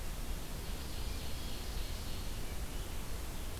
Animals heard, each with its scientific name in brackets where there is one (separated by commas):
Red-breasted Nuthatch (Sitta canadensis), Ovenbird (Seiurus aurocapilla)